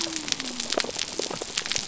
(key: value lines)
label: biophony
recorder: SoundTrap 300